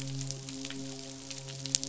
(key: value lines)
label: biophony, midshipman
recorder: SoundTrap 500